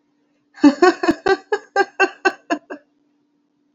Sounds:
Laughter